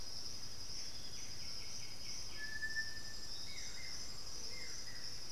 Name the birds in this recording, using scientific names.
Legatus leucophaius, Pachyramphus polychopterus, Xiphorhynchus guttatus